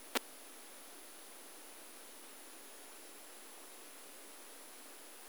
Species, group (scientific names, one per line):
Poecilimon superbus
Orthoptera